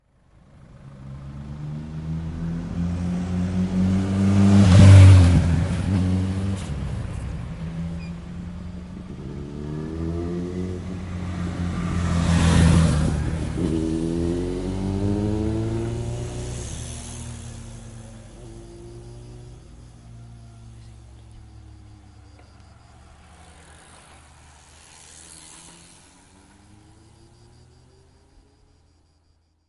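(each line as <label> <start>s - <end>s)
A loud motorcycle and a bicycle can be heard. 0.0s - 19.3s
A motorcycle roars by with a loud engine. 0.0s - 19.3s
A bicycle passes by with a short, gentle sound. 17.6s - 18.7s
An engine is running in the distance. 19.4s - 23.4s
A bicycle passes by with a small steady sound. 23.4s - 26.6s
Engine noise in the distance. 26.7s - 29.7s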